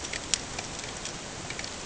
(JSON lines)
{"label": "ambient", "recorder": "HydroMoth"}